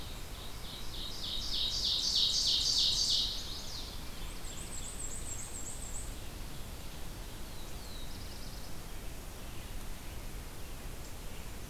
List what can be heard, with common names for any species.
Ovenbird, Chestnut-sided Warbler, Black-and-white Warbler, Black-throated Blue Warbler